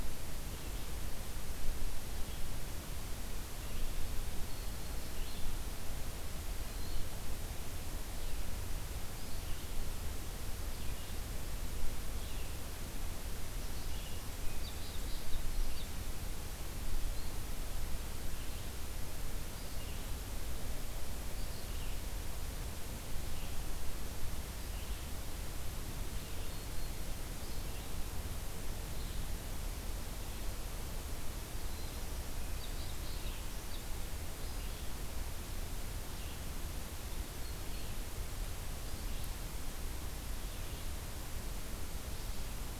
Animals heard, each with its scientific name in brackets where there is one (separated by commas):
Red-eyed Vireo (Vireo olivaceus), unidentified call